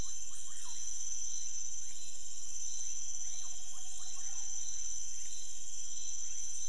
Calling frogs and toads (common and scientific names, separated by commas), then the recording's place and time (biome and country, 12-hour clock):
rufous frog (Leptodactylus fuscus)
Cerrado, Brazil, 3:00am